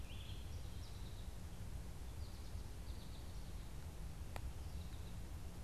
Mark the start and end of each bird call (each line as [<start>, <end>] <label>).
[0.00, 0.59] Red-eyed Vireo (Vireo olivaceus)
[0.00, 5.59] American Goldfinch (Spinus tristis)